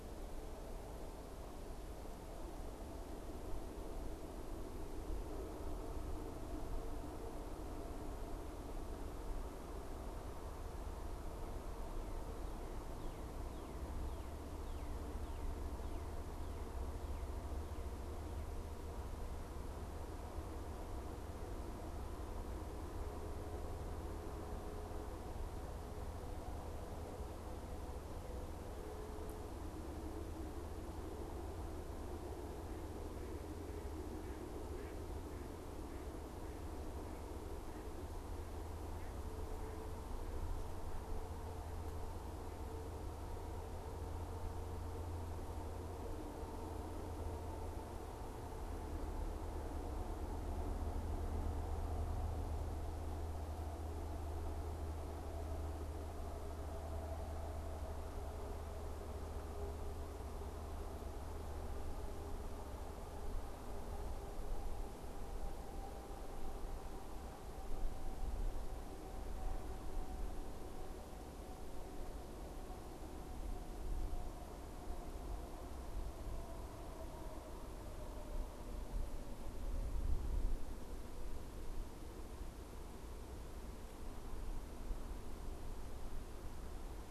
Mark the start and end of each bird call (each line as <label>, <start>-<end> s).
Northern Cardinal (Cardinalis cardinalis), 12.8-17.4 s
Mallard (Anas platyrhynchos), 32.0-39.9 s